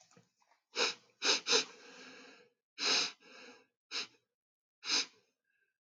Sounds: Sniff